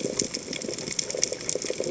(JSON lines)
{"label": "biophony, chatter", "recorder": "HydroMoth"}